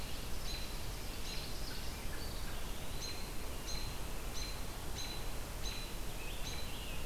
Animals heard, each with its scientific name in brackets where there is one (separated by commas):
Eastern Wood-Pewee (Contopus virens), American Robin (Turdus migratorius), Ovenbird (Seiurus aurocapilla), Scarlet Tanager (Piranga olivacea)